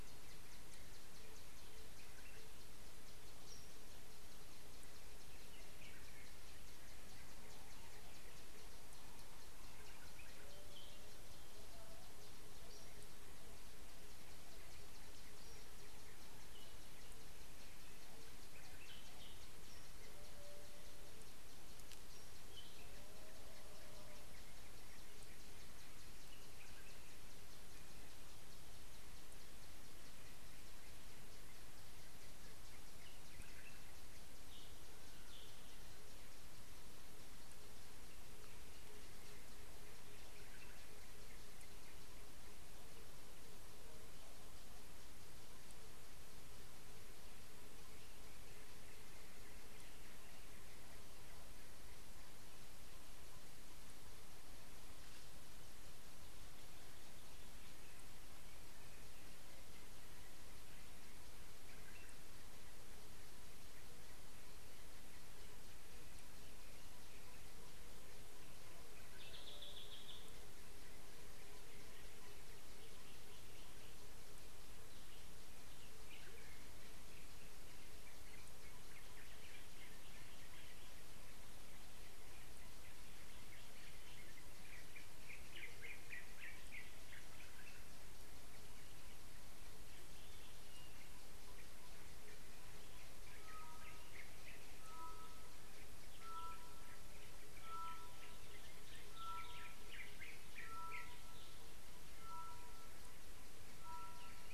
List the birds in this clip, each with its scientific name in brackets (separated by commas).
Yellow-whiskered Greenbul (Eurillas latirostris), Tropical Boubou (Laniarius major)